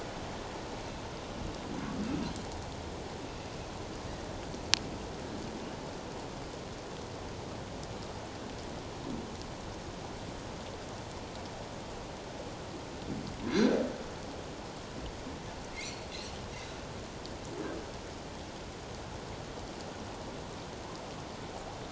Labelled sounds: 13.4	13.8	humpback whale, 1.5 to 1.8 kHz
15.8	16.4	humpback whale, 2.7 to 4.5 kHz

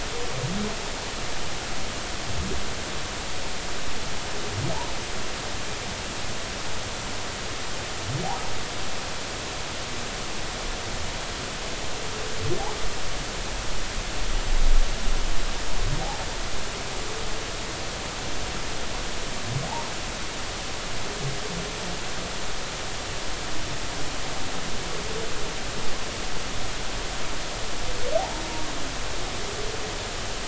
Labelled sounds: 28.2	28.4	humpback whale, 0.80 to 0.99 kHz

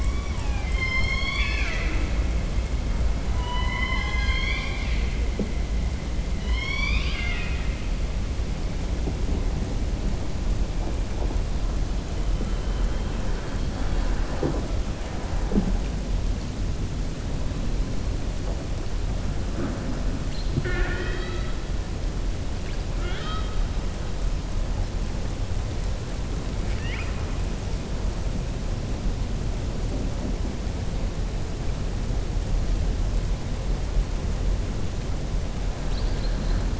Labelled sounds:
0.0	2.1	killer whale, southern resident, 0.73 to 6.7 kHz
3.3	5.0	killer whale, southern resident, 0.84 to 6.4 kHz
6.3	7.8	killer whale, southern resident, 1.1 to 5.9 kHz

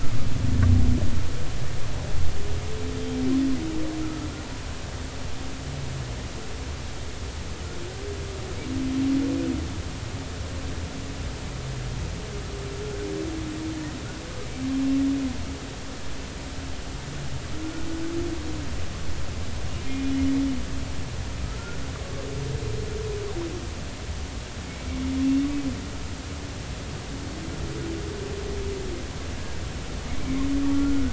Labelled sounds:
4.0	4.3	humpback whale, 1.2 to 1.4 kHz
19.8	20.1	humpback whale, 2.3 to 2.5 kHz
30.1	30.4	humpback whale, 2.1 to 2.4 kHz
30.7	31.1	humpback whale, 1.3 to 1.5 kHz

